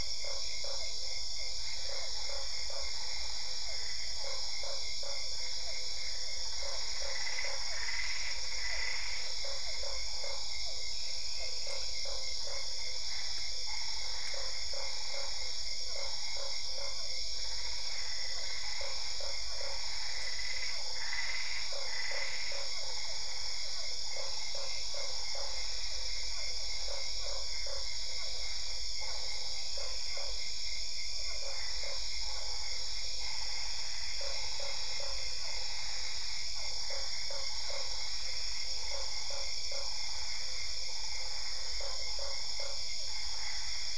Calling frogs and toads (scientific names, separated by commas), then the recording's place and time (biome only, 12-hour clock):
Boana lundii, Physalaemus cuvieri, Boana albopunctata
Cerrado, 8:45pm